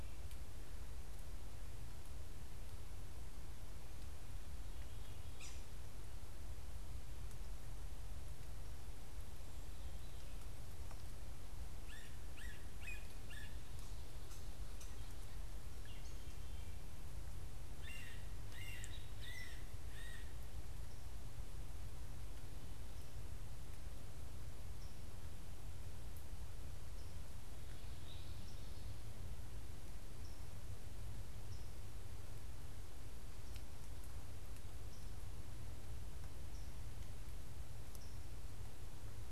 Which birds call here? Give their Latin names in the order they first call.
Sphyrapicus varius, Dumetella carolinensis, Catharus fuscescens